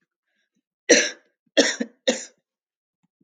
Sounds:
Cough